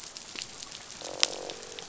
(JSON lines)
{"label": "biophony, croak", "recorder": "SoundTrap 500"}